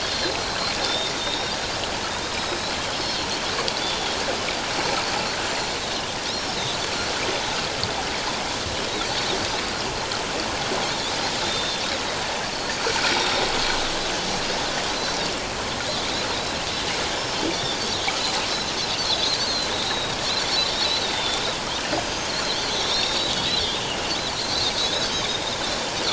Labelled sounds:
0.1	2.7	Pacific white-sided dolphin, 3.5 to 5.7 kHz
3.8	4.2	Pacific white-sided dolphin, 3.2 to 3.6 kHz
6.3	6.6	Pacific white-sided dolphin, 5.0 to 5.7 kHz
11.4	11.9	Pacific white-sided dolphin, 3.4 to 3.8 kHz
13.0	13.5	Pacific white-sided dolphin, 3.6 to 5.7 kHz
15.0	15.3	Pacific white-sided dolphin, 3.6 to 6.1 kHz
16.3	17.8	Pacific white-sided dolphin, 3.4 to 4.1 kHz
19.2	20.2	Pacific white-sided dolphin, 3.5 to 4.6 kHz
21.0	23.4	Pacific white-sided dolphin, 3.2 to 5.8 kHz
24.3	24.9	Pacific white-sided dolphin, 3.9 to 6.5 kHz

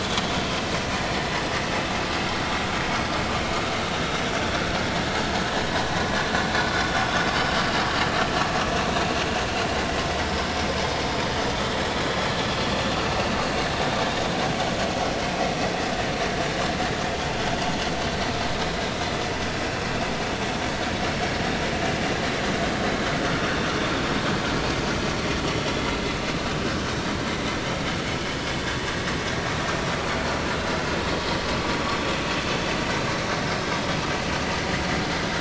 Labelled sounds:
20.6	20.9	vessel noise, 4.4 to 4.5 kHz
30.5	30.8	vessel noise, 3.9 to 4.1 kHz

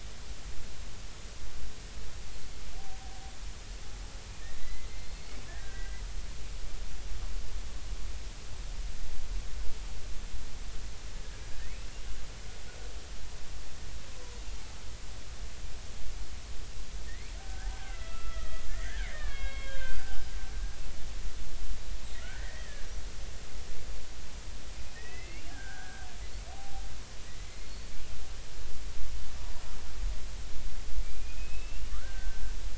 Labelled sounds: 4.6	6.0	killer whale, Bigg's (transient), 1.5 to 4.5 kHz
11.6	11.9	killer whale, Bigg's (transient), 1.7 to 2.7 kHz
17.1	20.2	killer whale, Bigg's (transient), 0.80 to 3.3 kHz
22.2	22.8	killer whale, Bigg's (transient), 1.3 to 2.0 kHz
24.7	26.1	killer whale, Bigg's (transient), 1.4 to 3.0 kHz
26.5	26.8	killer whale, Bigg's (transient), 0.80 to 0.83 kHz
27.7	27.9	killer whale, Bigg's (transient), 4.3 to 4.5 kHz
31.0	32.4	killer whale, Bigg's (transient), 1.1 to 2.9 kHz

